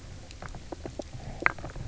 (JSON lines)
{"label": "biophony, knock croak", "recorder": "SoundTrap 300"}